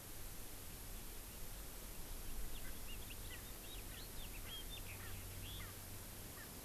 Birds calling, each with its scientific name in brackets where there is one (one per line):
Erckel's Francolin (Pternistis erckelii)
House Finch (Haemorhous mexicanus)